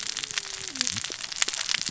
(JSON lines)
{"label": "biophony, cascading saw", "recorder": "SoundTrap 600 or HydroMoth"}